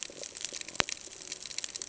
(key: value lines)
label: ambient
recorder: HydroMoth